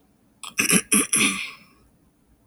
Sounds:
Throat clearing